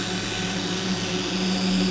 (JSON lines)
{"label": "anthrophony, boat engine", "recorder": "SoundTrap 500"}